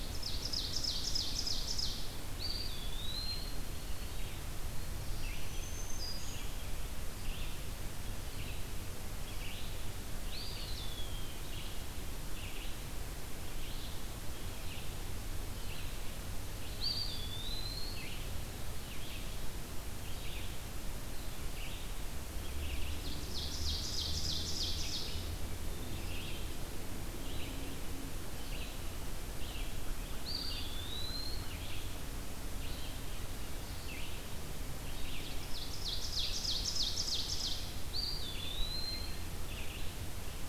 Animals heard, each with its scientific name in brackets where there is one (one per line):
Red-eyed Vireo (Vireo olivaceus)
Black-throated Green Warbler (Setophaga virens)
Ovenbird (Seiurus aurocapilla)
Eastern Wood-Pewee (Contopus virens)